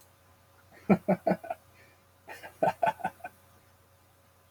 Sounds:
Laughter